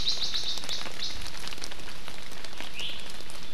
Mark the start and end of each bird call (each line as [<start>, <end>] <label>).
[2.70, 2.90] Iiwi (Drepanis coccinea)